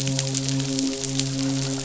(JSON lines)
{"label": "biophony, midshipman", "recorder": "SoundTrap 500"}